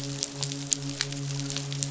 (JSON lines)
{"label": "biophony, midshipman", "recorder": "SoundTrap 500"}